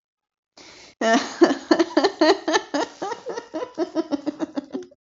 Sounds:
Laughter